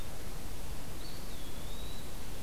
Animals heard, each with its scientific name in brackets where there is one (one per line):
Eastern Wood-Pewee (Contopus virens)